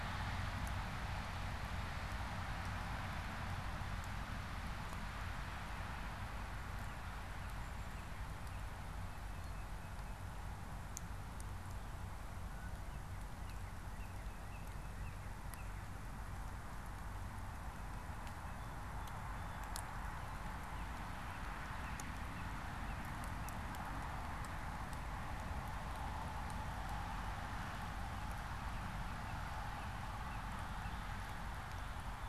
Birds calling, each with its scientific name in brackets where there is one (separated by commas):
Tufted Titmouse (Baeolophus bicolor), Northern Cardinal (Cardinalis cardinalis)